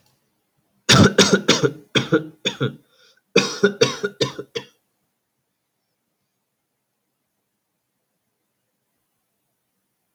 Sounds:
Cough